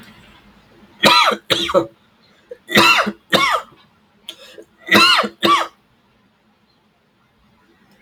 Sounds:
Cough